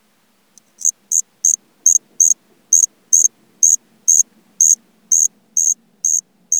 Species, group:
Natula averni, Orthoptera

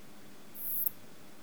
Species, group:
Poecilimon sanctipauli, Orthoptera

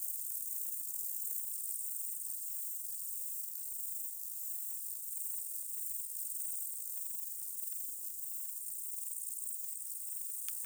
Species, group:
Stauroderus scalaris, Orthoptera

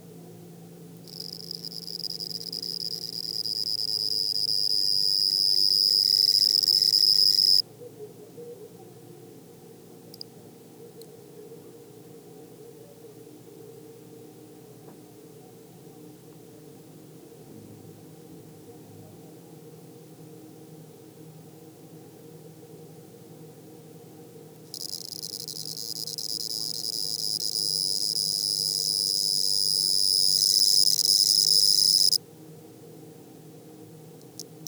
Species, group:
Pteronemobius lineolatus, Orthoptera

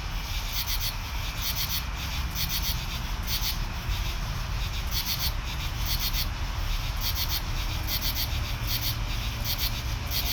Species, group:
Pterophylla camellifolia, Orthoptera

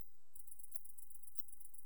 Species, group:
Tettigonia viridissima, Orthoptera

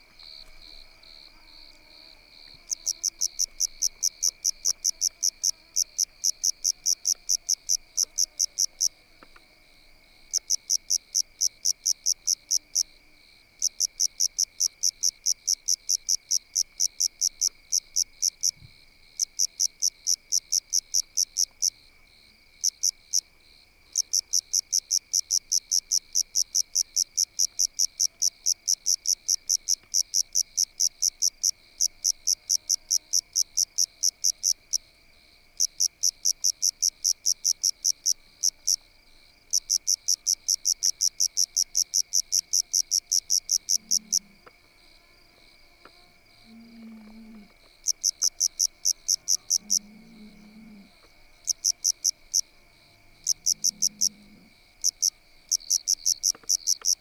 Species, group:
Eumodicogryllus theryi, Orthoptera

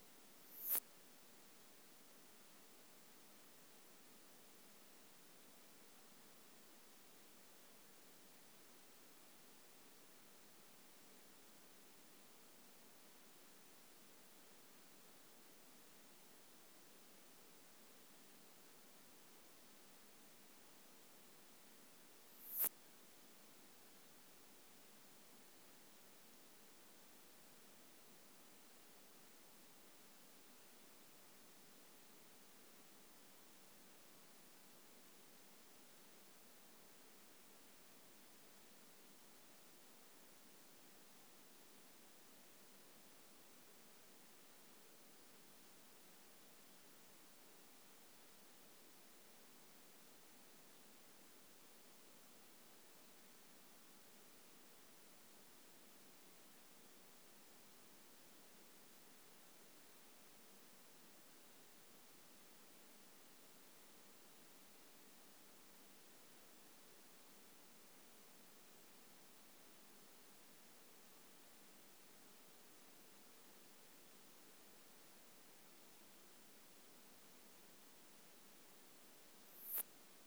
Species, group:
Poecilimon nonveilleri, Orthoptera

